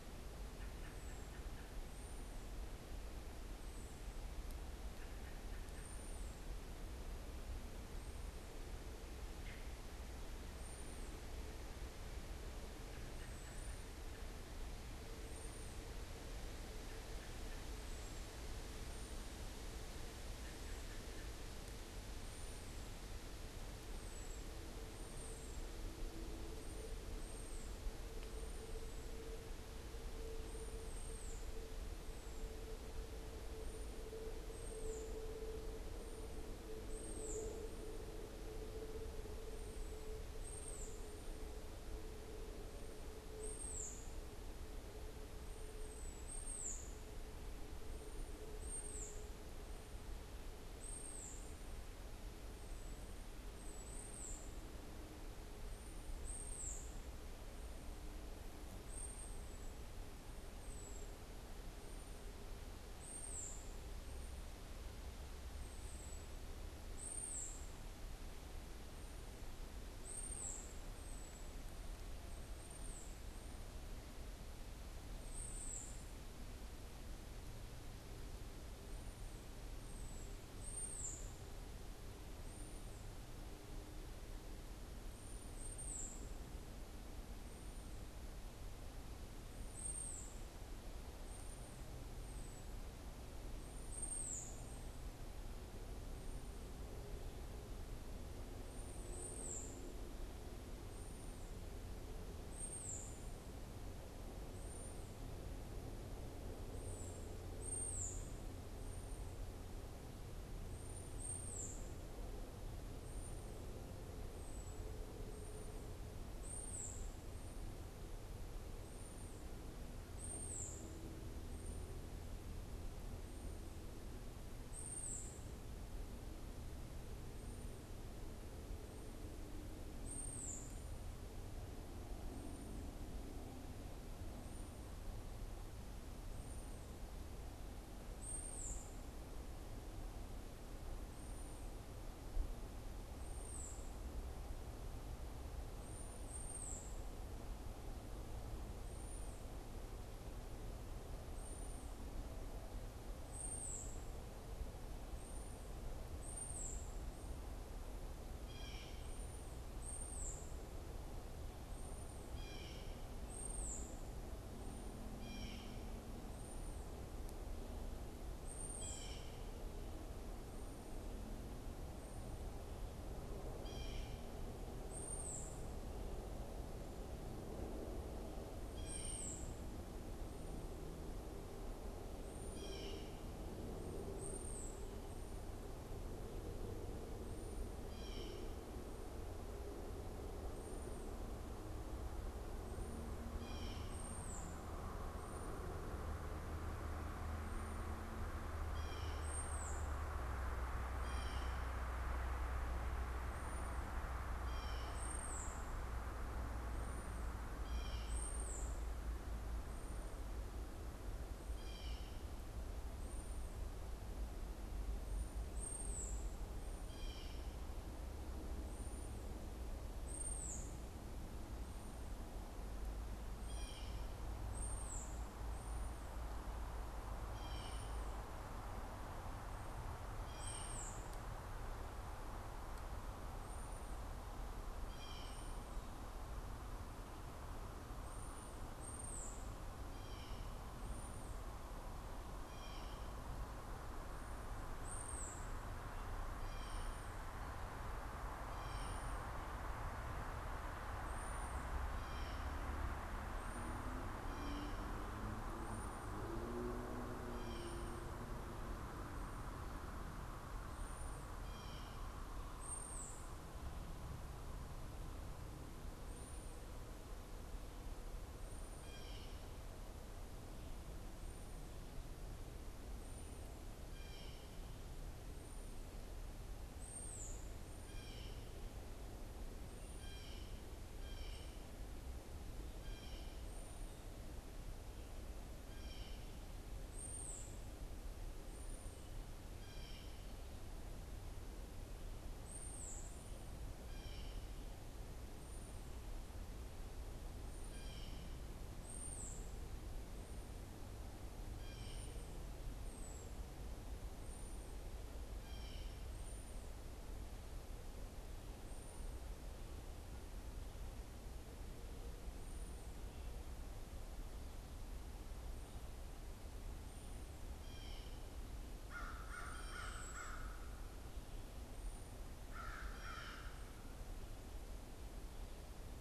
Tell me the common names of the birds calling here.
American Robin, unidentified bird, Blue Jay, American Crow